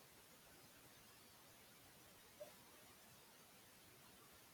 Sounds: Cough